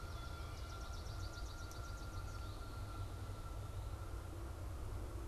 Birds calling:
Canada Goose (Branta canadensis), Swamp Sparrow (Melospiza georgiana)

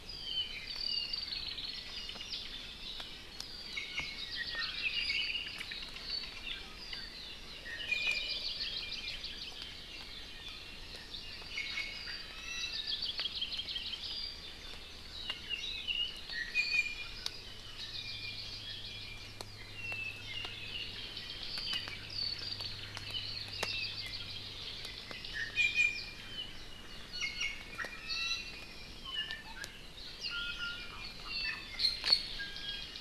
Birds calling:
Hawaii Creeper (Loxops mana), Hawaii Amakihi (Chlorodrepanis virens), Iiwi (Drepanis coccinea), Apapane (Himatione sanguinea)

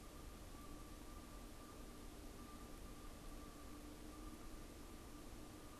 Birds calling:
Canada Goose (Branta canadensis)

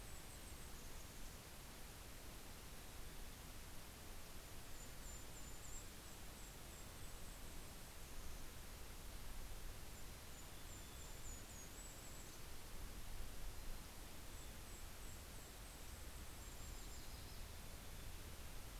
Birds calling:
Yellow-rumped Warbler (Setophaga coronata), Mountain Chickadee (Poecile gambeli)

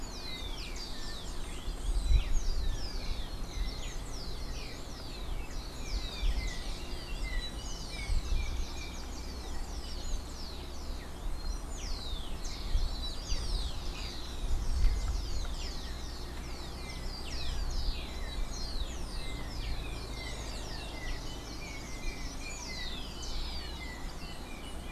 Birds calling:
Yellow-backed Oriole (Icterus chrysater), Rufous-collared Sparrow (Zonotrichia capensis)

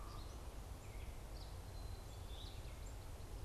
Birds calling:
American Goldfinch (Spinus tristis), Black-capped Chickadee (Poecile atricapillus), Gray Catbird (Dumetella carolinensis)

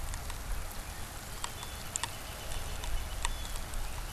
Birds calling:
Northern Flicker (Colaptes auratus)

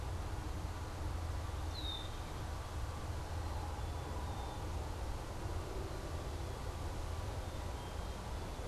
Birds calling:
Black-capped Chickadee (Poecile atricapillus), Red-winged Blackbird (Agelaius phoeniceus)

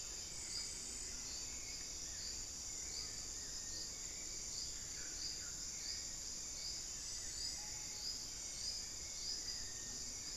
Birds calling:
Solitary Black Cacique (Cacicus solitarius), Screaming Piha (Lipaugus vociferans)

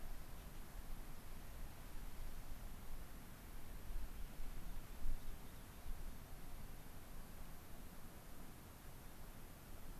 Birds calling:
Rock Wren (Salpinctes obsoletus)

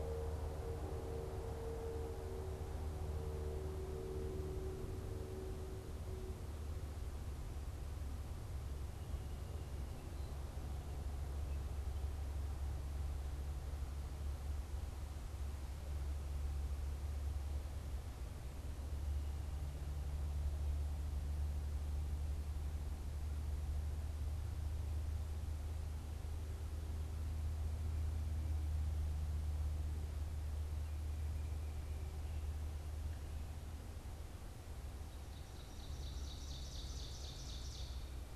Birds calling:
Ovenbird (Seiurus aurocapilla)

